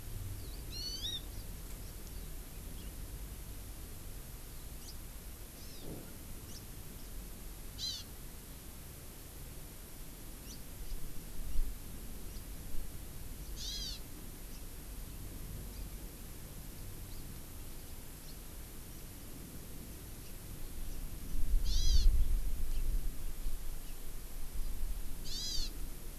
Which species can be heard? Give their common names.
Eurasian Skylark, Hawaii Amakihi, House Finch